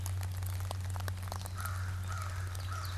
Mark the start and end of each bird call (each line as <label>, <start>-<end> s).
American Crow (Corvus brachyrhynchos), 1.3-3.0 s
Ovenbird (Seiurus aurocapilla), 2.4-3.0 s